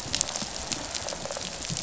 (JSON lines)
{"label": "biophony, rattle response", "recorder": "SoundTrap 500"}